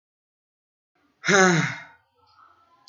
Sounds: Sigh